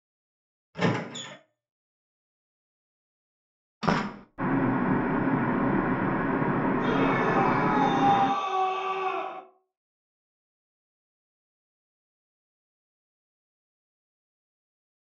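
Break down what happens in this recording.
0.73-1.35 s: there is squeaking
3.81-4.25 s: a door closes
4.38-8.29 s: the sound of a car
6.78-9.4 s: someone screams

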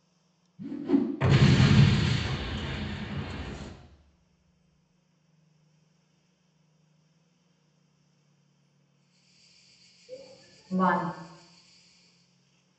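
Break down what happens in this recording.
0.57-1.03 s: whooshing is audible
1.2-3.7 s: the sound of an explosion
8.88-12.46 s: you can hear a quiet cricket fade in and then fade out
10.12-11.06 s: someone says "One."

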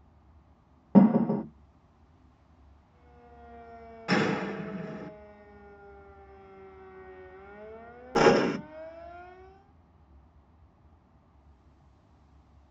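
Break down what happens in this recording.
0.91-1.43 s: a door closes
2.8-9.81 s: you can hear a quiet siren fade in and then fade out
4.07-5.09 s: gunfire is heard
8.15-8.57 s: the sound of gunfire

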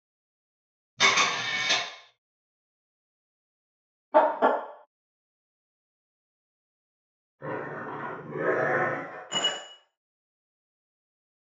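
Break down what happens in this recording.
0.97-1.79 s: the sound of a camera
4.12-4.47 s: a chicken can be heard
7.38-9.22 s: there is growling
9.29-9.59 s: glass is heard

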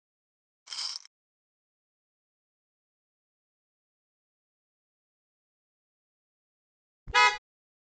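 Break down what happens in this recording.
0.66-1.08 s: the sound of glass
7.07-7.38 s: a vehicle horn can be heard

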